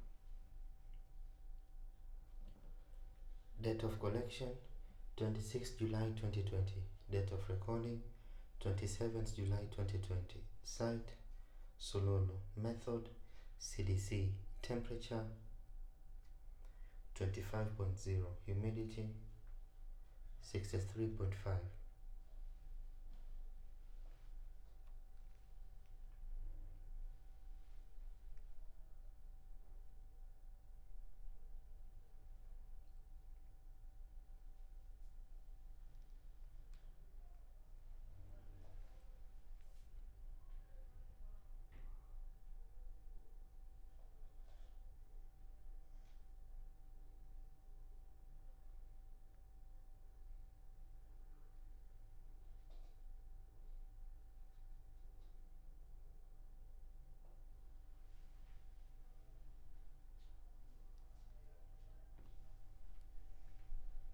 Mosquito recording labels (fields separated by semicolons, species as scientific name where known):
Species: no mosquito; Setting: cup